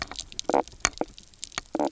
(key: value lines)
label: biophony, knock croak
recorder: SoundTrap 300